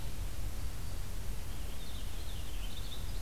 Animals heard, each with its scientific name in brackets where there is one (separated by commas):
Black-throated Green Warbler (Setophaga virens), Purple Finch (Haemorhous purpureus)